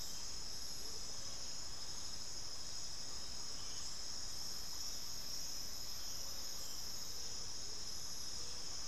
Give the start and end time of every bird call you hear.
0.7s-1.0s: Amazonian Motmot (Momotus momota)
7.2s-7.9s: Amazonian Motmot (Momotus momota)

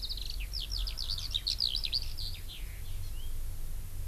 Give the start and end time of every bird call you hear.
0.0s-3.4s: Eurasian Skylark (Alauda arvensis)
0.7s-1.4s: Erckel's Francolin (Pternistis erckelii)

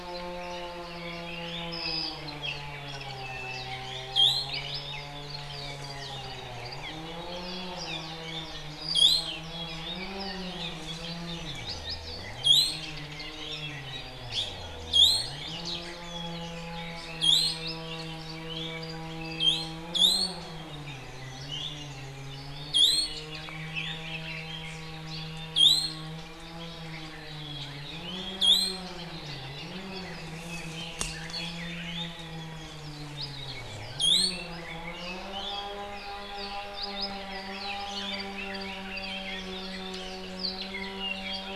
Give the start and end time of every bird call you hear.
1.0s-2.3s: Apapane (Himatione sanguinea)
2.9s-3.8s: Apapane (Himatione sanguinea)
3.8s-4.7s: Iiwi (Drepanis coccinea)
4.5s-5.2s: Apapane (Himatione sanguinea)
5.5s-5.7s: Apapane (Himatione sanguinea)
5.9s-6.3s: Iiwi (Drepanis coccinea)
6.8s-7.1s: Apapane (Himatione sanguinea)
7.4s-8.1s: Apapane (Himatione sanguinea)
8.2s-8.5s: Iiwi (Drepanis coccinea)
8.9s-9.4s: Iiwi (Drepanis coccinea)
9.4s-10.4s: Apapane (Himatione sanguinea)
10.5s-10.8s: Iiwi (Drepanis coccinea)
11.6s-12.3s: Apapane (Himatione sanguinea)
12.5s-12.9s: Iiwi (Drepanis coccinea)
13.4s-13.7s: Iiwi (Drepanis coccinea)
14.3s-14.6s: Iiwi (Drepanis coccinea)
14.9s-15.6s: Iiwi (Drepanis coccinea)
16.3s-18.1s: Red-billed Leiothrix (Leiothrix lutea)
17.2s-17.7s: Iiwi (Drepanis coccinea)
17.6s-17.9s: Apapane (Himatione sanguinea)
18.5s-18.9s: Iiwi (Drepanis coccinea)
18.8s-19.5s: Apapane (Himatione sanguinea)
19.4s-20.5s: Iiwi (Drepanis coccinea)
21.4s-21.9s: Iiwi (Drepanis coccinea)
22.7s-23.3s: Iiwi (Drepanis coccinea)
22.7s-24.9s: Red-billed Leiothrix (Leiothrix lutea)
23.7s-24.1s: Iiwi (Drepanis coccinea)
25.1s-25.3s: Hawaii Creeper (Loxops mana)
25.6s-26.1s: Iiwi (Drepanis coccinea)
28.0s-28.9s: Iiwi (Drepanis coccinea)
29.2s-32.1s: Red-billed Leiothrix (Leiothrix lutea)
31.8s-32.2s: Iiwi (Drepanis coccinea)
33.1s-33.4s: Apapane (Himatione sanguinea)
34.0s-34.5s: Iiwi (Drepanis coccinea)
34.1s-35.4s: Red-billed Leiothrix (Leiothrix lutea)
35.3s-35.7s: Iiwi (Drepanis coccinea)
35.5s-39.3s: Apapane (Himatione sanguinea)
36.9s-39.6s: Red-billed Leiothrix (Leiothrix lutea)
40.3s-41.6s: Apapane (Himatione sanguinea)

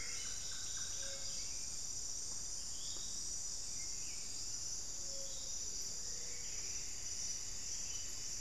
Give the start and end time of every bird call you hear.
0.0s-1.4s: Solitary Black Cacique (Cacicus solitarius)
0.0s-8.4s: Buff-throated Saltator (Saltator maximus)
5.8s-8.4s: Ruddy Quail-Dove (Geotrygon montana)

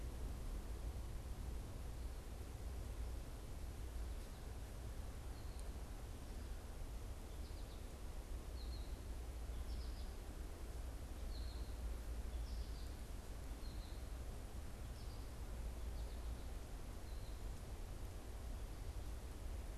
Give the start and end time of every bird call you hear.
6.5s-17.9s: American Goldfinch (Spinus tristis)

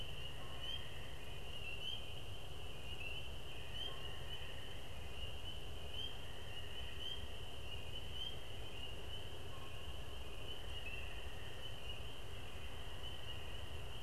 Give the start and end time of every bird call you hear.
0.2s-1.4s: Canada Goose (Branta canadensis)
3.8s-4.2s: Canada Goose (Branta canadensis)
9.3s-10.5s: Canada Goose (Branta canadensis)

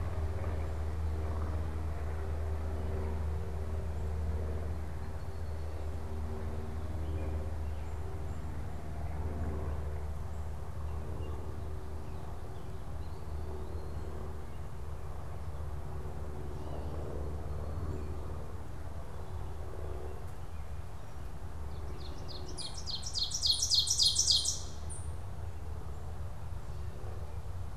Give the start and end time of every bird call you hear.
12.7s-27.8s: Eastern Wood-Pewee (Contopus virens)
21.7s-25.3s: Ovenbird (Seiurus aurocapilla)

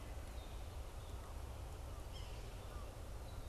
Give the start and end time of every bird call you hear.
1.9s-2.6s: Yellow-bellied Sapsucker (Sphyrapicus varius)

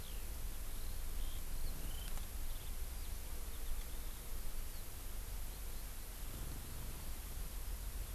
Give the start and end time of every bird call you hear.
0.0s-6.1s: Eurasian Skylark (Alauda arvensis)

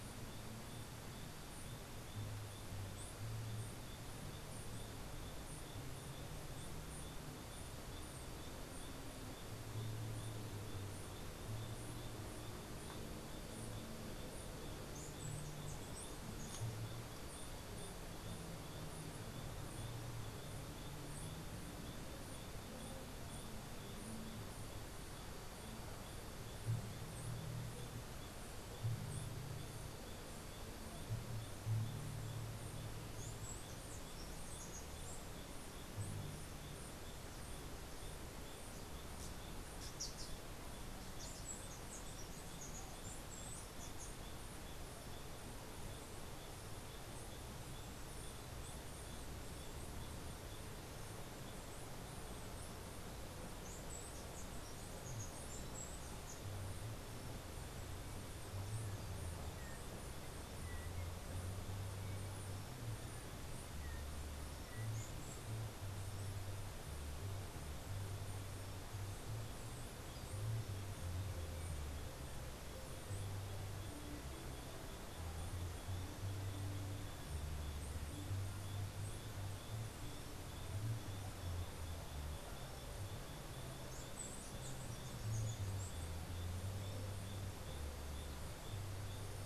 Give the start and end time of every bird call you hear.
1.3s-11.2s: Chestnut-capped Brushfinch (Arremon brunneinucha)
14.8s-18.6s: Chestnut-capped Brushfinch (Arremon brunneinucha)
32.4s-36.3s: Chestnut-capped Brushfinch (Arremon brunneinucha)
39.0s-41.0s: unidentified bird
41.4s-44.4s: Chestnut-capped Brushfinch (Arremon brunneinucha)
53.4s-56.7s: Chestnut-capped Brushfinch (Arremon brunneinucha)
83.5s-86.8s: Chestnut-capped Brushfinch (Arremon brunneinucha)

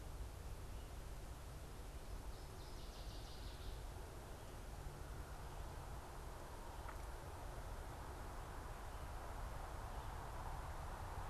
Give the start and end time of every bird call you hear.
2.3s-4.0s: Northern Waterthrush (Parkesia noveboracensis)

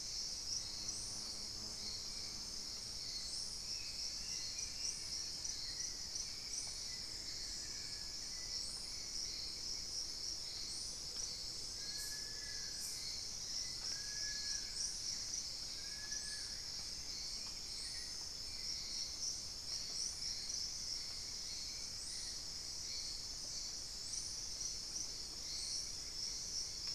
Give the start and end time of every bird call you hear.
4.0s-5.8s: Plain-winged Antshrike (Thamnophilus schistaceus)
6.7s-8.3s: Amazonian Barred-Woodcreeper (Dendrocolaptes certhia)
10.7s-13.2s: Amazonian Motmot (Momotus momota)
11.6s-16.8s: Long-billed Woodcreeper (Nasica longirostris)
22.0s-24.7s: Thrush-like Wren (Campylorhynchus turdinus)

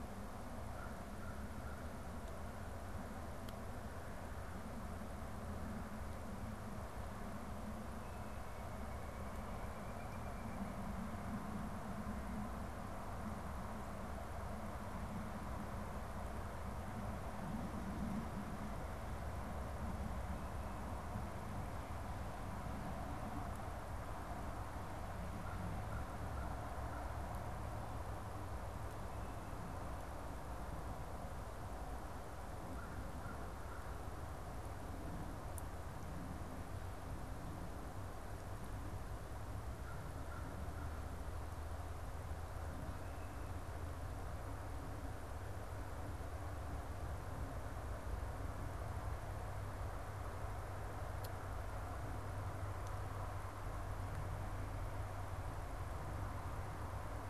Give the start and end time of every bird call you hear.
0.3s-2.0s: American Crow (Corvus brachyrhynchos)
7.9s-11.5s: Pileated Woodpecker (Dryocopus pileatus)
32.6s-33.9s: American Crow (Corvus brachyrhynchos)
39.7s-41.2s: American Crow (Corvus brachyrhynchos)

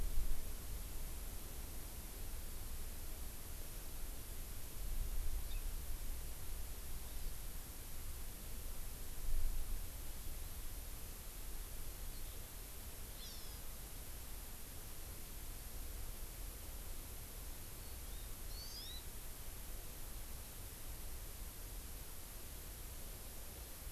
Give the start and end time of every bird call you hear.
5.5s-5.6s: Hawaii Amakihi (Chlorodrepanis virens)
7.0s-7.3s: Hawaii Amakihi (Chlorodrepanis virens)
13.2s-13.6s: Hawaii Amakihi (Chlorodrepanis virens)
17.8s-19.1s: Hawaii Amakihi (Chlorodrepanis virens)

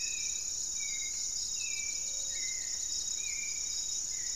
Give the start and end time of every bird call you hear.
0.0s-4.3s: Gray-fronted Dove (Leptotila rufaxilla)
0.0s-4.3s: Hauxwell's Thrush (Turdus hauxwelli)

